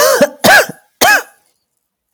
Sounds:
Cough